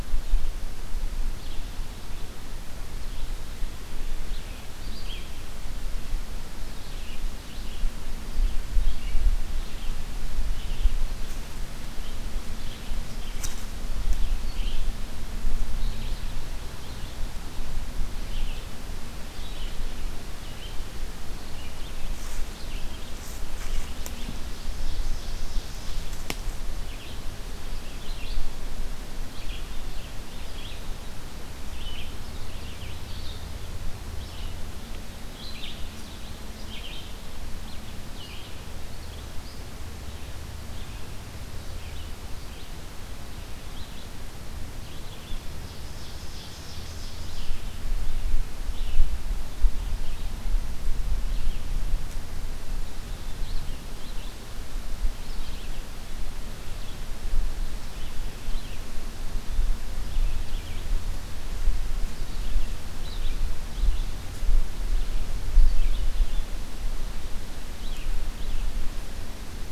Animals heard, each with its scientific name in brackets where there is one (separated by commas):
Red-eyed Vireo (Vireo olivaceus), Ovenbird (Seiurus aurocapilla)